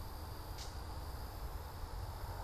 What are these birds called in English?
Gray Catbird